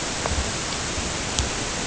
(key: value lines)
label: ambient
recorder: HydroMoth